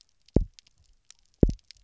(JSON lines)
{"label": "biophony, double pulse", "recorder": "SoundTrap 300"}